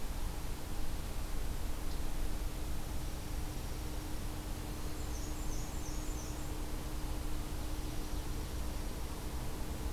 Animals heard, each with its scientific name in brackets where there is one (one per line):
Ovenbird (Seiurus aurocapilla)
Black-and-white Warbler (Mniotilta varia)
Dark-eyed Junco (Junco hyemalis)